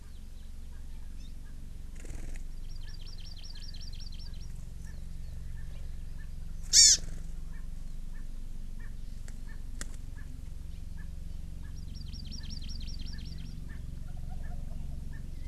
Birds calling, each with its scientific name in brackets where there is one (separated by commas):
Erckel's Francolin (Pternistis erckelii), Hawaii Amakihi (Chlorodrepanis virens), Wild Turkey (Meleagris gallopavo)